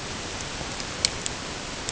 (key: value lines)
label: ambient
recorder: HydroMoth